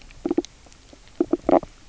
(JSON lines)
{"label": "biophony, knock croak", "recorder": "SoundTrap 300"}